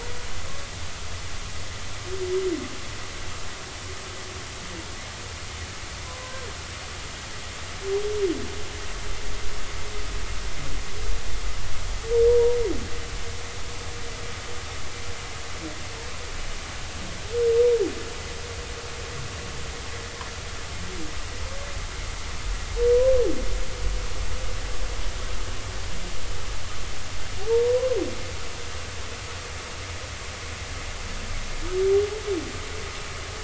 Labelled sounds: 12.3	12.6	humpback whale, 0.90 to 0.99 kHz
27.5	27.9	humpback whale, 0.86 to 1.1 kHz

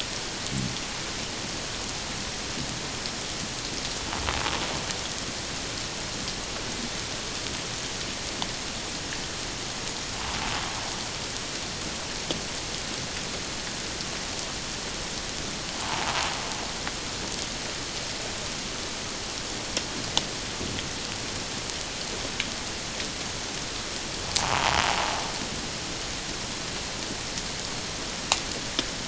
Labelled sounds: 15.8	16.1	invertebrate grinding on or near the hydrophone, 0.81 to 1.2 kHz
24.4	24.8	invertebrate grinding on or near the hydrophone, 0.78 to 1.2 kHz

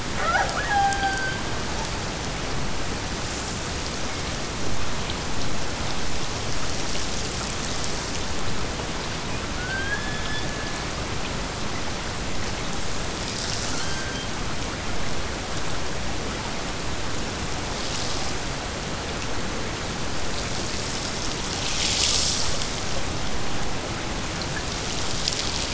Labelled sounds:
0.1	1.5	killer whale, Bigg's (transient), Gulf of Alaska transient, 0.25 to 5.0 kHz
9.5	10.9	killer whale, Bigg's (transient), Gulf of Alaska transient, 1.2 to 5.3 kHz

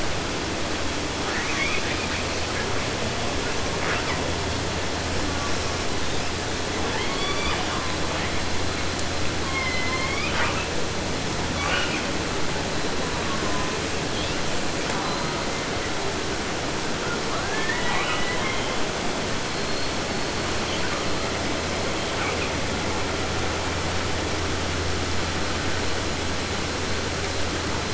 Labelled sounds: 1.2	2.7	killer whale, 0.50 to 6.7 kHz
3.5	4.2	killer whale, 0.27 to 6.2 kHz
5.3	6.4	killer whale, 0.44 to 6.7 kHz
6.7	8.4	killer whale, southern resident, J pod, call S44 and call S04, 0.50 to 8.0 kHz
9.4	10.7	killer whale, southern resident, J pod, call S01, 0.50 to 6.5 kHz
11.5	12.1	killer whale, 0.50 to 5.3 kHz
13.0	13.8	killer whale, 0.63 to 1.6 kHz
14.1	14.5	killer whale, 1.0 to 5.6 kHz
14.8	15.9	killer whale, 0.45 to 5.9 kHz
17.0	18.8	killer whale, 0.38 to 4.1 kHz
19.4	21.3	killer whale, 0.86 to 8.0 kHz
22.1	22.5	killer whale, 0.61 to 4.1 kHz

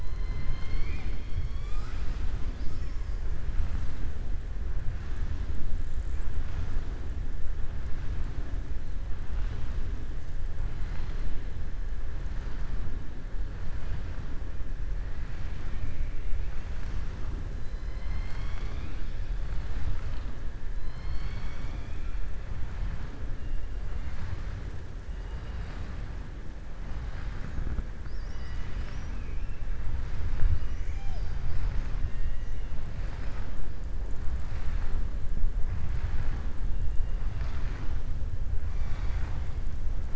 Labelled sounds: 0.0	2.3	killer whale, southern resident, 0.84 to 7.9 kHz
20.8	22.2	killer whale, southern resident, 1.3 to 7.0 kHz
32.0	32.4	killer whale, southern resident, 1.8 to 3.7 kHz

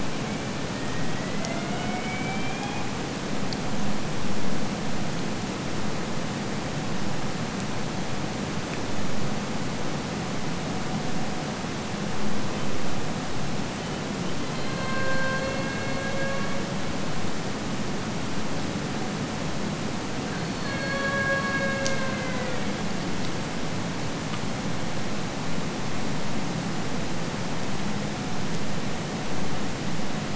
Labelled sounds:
0.0	3.1	killer whale, Bigg's (transient), AT1 transient, 0.57 to 3.9 kHz
14.2	16.9	killer whale, Bigg's (transient), AT1 transient, 0.40 to 4.5 kHz
20.2	22.9	killer whale, Bigg's (transient), AT1 transient, 0.40 to 5.2 kHz

